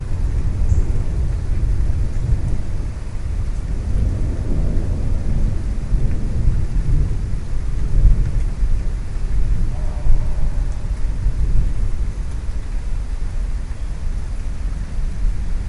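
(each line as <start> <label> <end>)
0.1 Rain falling continuously. 15.7
5.5 Distant thunder. 7.5
10.1 A dog barks in the background. 11.0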